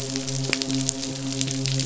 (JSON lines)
{"label": "biophony, midshipman", "recorder": "SoundTrap 500"}